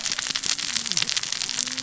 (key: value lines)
label: biophony, cascading saw
recorder: SoundTrap 600 or HydroMoth